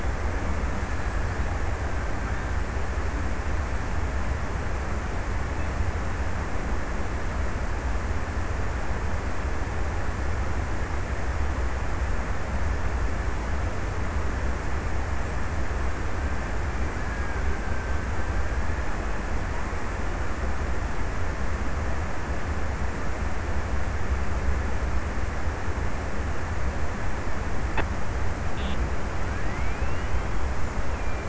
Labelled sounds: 15.9	20.5	killer whale, Bigg's (transient), 1.2 to 2.0 kHz

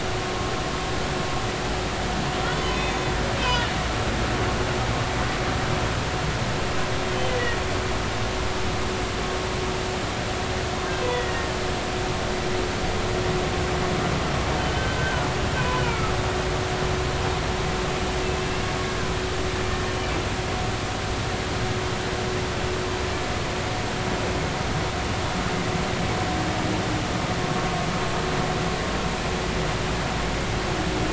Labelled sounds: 2.7	3.0	humpback whale, 2.5 to 3.6 kHz
3.4	3.7	humpback whale, 2.8 to 3.2 kHz
7.1	7.4	humpback whale, 3.0 to 3.3 kHz
11.0	11.5	humpback whale, 1.7 to 2.0 kHz
14.6	15.3	humpback whale, 1.4 to 3.1 kHz
15.6	16.1	humpback whale, 0.96 to 2.5 kHz
18.2	18.5	humpback whale, 2.6 to 2.7 kHz

